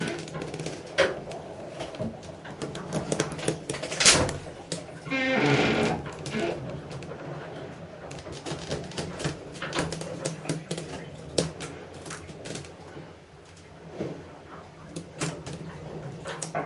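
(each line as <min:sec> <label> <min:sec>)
0:00.0 Creaking noises occur intermittently with faint water sloshing sounds in the background. 0:05.0
0:05.1 An abrupt metallic creaking sound stops. 0:06.7
0:06.7 Creaking noises occur intermittently with faint water sloshing sounds in the background. 0:16.7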